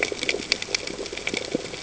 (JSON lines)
{"label": "ambient", "recorder": "HydroMoth"}